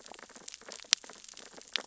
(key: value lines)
label: biophony, sea urchins (Echinidae)
recorder: SoundTrap 600 or HydroMoth